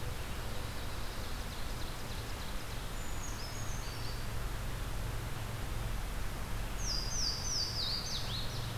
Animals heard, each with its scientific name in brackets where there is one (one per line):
Ovenbird (Seiurus aurocapilla)
Louisiana Waterthrush (Parkesia motacilla)
Brown Creeper (Certhia americana)